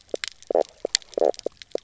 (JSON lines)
{"label": "biophony, knock croak", "recorder": "SoundTrap 300"}